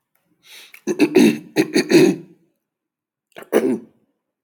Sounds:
Throat clearing